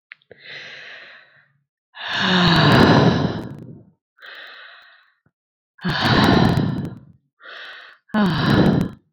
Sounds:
Sigh